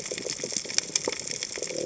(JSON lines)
{"label": "biophony", "recorder": "HydroMoth"}